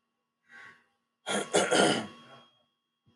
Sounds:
Throat clearing